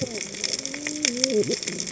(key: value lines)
label: biophony, cascading saw
recorder: HydroMoth